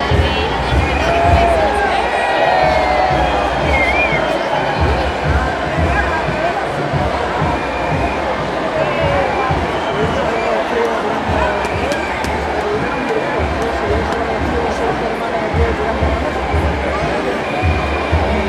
Is there any barking?
no